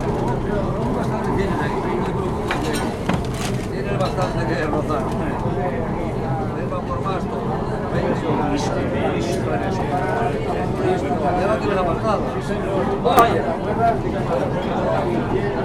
Are many people speaking?
yes